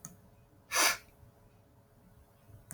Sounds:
Sniff